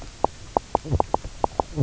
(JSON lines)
{"label": "biophony, knock croak", "recorder": "SoundTrap 300"}